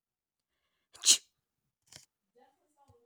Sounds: Sneeze